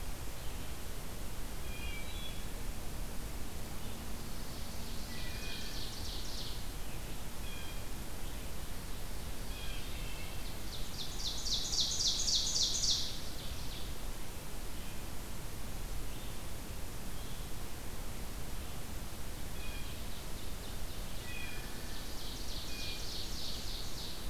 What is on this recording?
Wood Thrush, Chestnut-sided Warbler, Ovenbird, Red-eyed Vireo, Blue Jay